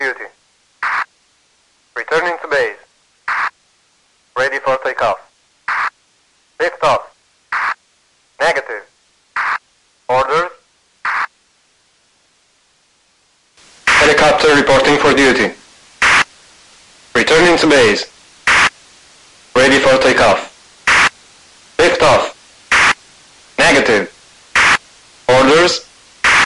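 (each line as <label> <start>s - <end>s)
A man is repeatedly speaking into a handheld radio. 0.0s - 11.3s
A man is repeatedly speaking into a handheld radio. 13.8s - 26.5s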